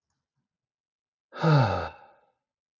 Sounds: Sigh